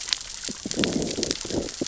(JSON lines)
{"label": "biophony, growl", "recorder": "SoundTrap 600 or HydroMoth"}